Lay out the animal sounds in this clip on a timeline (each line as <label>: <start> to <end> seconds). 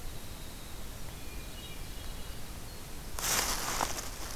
Winter Wren (Troglodytes hiemalis): 0.0 to 1.4 seconds
Hermit Thrush (Catharus guttatus): 1.3 to 3.0 seconds